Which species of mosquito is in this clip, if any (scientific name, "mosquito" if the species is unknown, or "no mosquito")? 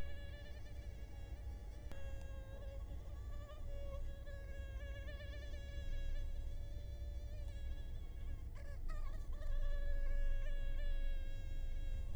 Culex quinquefasciatus